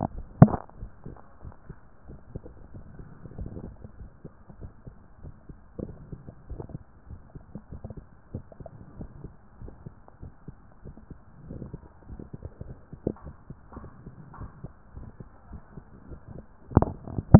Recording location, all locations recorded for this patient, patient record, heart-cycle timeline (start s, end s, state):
tricuspid valve (TV)
aortic valve (AV)+pulmonary valve (PV)+tricuspid valve (TV)+mitral valve (MV)+mitral valve (MV)
#Age: nan
#Sex: Female
#Height: nan
#Weight: nan
#Pregnancy status: True
#Murmur: Absent
#Murmur locations: nan
#Most audible location: nan
#Systolic murmur timing: nan
#Systolic murmur shape: nan
#Systolic murmur grading: nan
#Systolic murmur pitch: nan
#Systolic murmur quality: nan
#Diastolic murmur timing: nan
#Diastolic murmur shape: nan
#Diastolic murmur grading: nan
#Diastolic murmur pitch: nan
#Diastolic murmur quality: nan
#Outcome: Normal
#Campaign: 2014 screening campaign
0.00	8.24	unannotated
8.24	8.32	diastole
8.32	8.44	S1
8.44	8.58	systole
8.58	8.68	S2
8.68	8.98	diastole
8.98	9.10	S1
9.10	9.24	systole
9.24	9.34	S2
9.34	9.60	diastole
9.60	9.72	S1
9.72	9.88	systole
9.88	9.96	S2
9.96	10.22	diastole
10.22	10.32	S1
10.32	10.48	systole
10.48	10.56	S2
10.56	10.84	diastole
10.84	10.94	S1
10.94	11.08	systole
11.08	11.18	S2
11.18	11.48	diastole
11.48	11.60	S1
11.60	11.82	systole
11.82	11.90	S2
11.90	12.10	diastole
12.10	12.20	S1
12.20	12.38	systole
12.38	12.48	S2
12.48	12.66	diastole
12.66	12.76	S1
12.76	12.92	systole
12.92	13.00	S2
13.00	13.24	diastole
13.24	13.36	S1
13.36	13.50	systole
13.50	13.58	S2
13.58	13.76	diastole
13.76	13.88	S1
13.88	14.02	systole
14.02	14.12	S2
14.12	14.38	diastole
14.38	14.50	S1
14.50	14.64	systole
14.64	14.74	S2
14.74	14.96	diastole
14.96	15.08	S1
15.08	15.22	systole
15.22	15.30	S2
15.30	15.50	diastole
15.50	15.60	S1
15.60	15.76	systole
15.76	17.39	unannotated